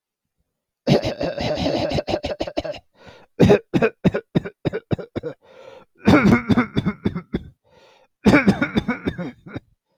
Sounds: Cough